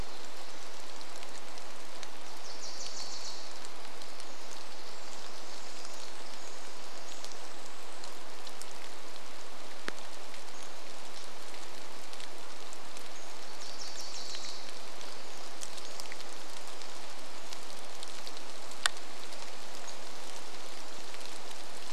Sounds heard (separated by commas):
Pacific-slope Flycatcher call, Pacific Wren song, Wilson's Warbler song, rain